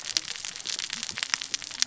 {"label": "biophony, cascading saw", "recorder": "SoundTrap 600 or HydroMoth"}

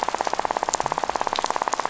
{"label": "biophony, rattle", "recorder": "SoundTrap 500"}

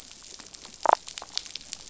{"label": "biophony, damselfish", "recorder": "SoundTrap 500"}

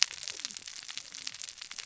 {"label": "biophony, cascading saw", "recorder": "SoundTrap 600 or HydroMoth"}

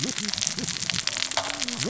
{"label": "biophony, cascading saw", "recorder": "SoundTrap 600 or HydroMoth"}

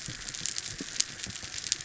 {"label": "biophony", "recorder": "SoundTrap 300"}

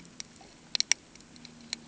{"label": "ambient", "recorder": "HydroMoth"}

